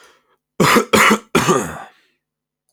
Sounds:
Cough